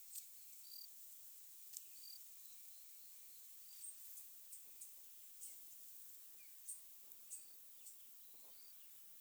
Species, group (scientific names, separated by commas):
Gryllus assimilis, Orthoptera